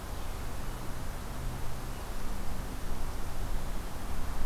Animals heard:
forest ambience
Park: Acadia National Park